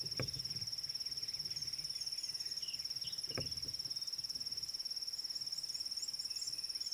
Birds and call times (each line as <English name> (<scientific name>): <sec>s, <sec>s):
Red-cheeked Cordonbleu (Uraeginthus bengalus): 5.8s